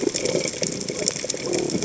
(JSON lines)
{"label": "biophony", "recorder": "HydroMoth"}